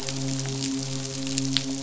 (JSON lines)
{"label": "biophony, midshipman", "recorder": "SoundTrap 500"}